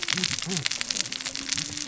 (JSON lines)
{"label": "biophony, cascading saw", "recorder": "SoundTrap 600 or HydroMoth"}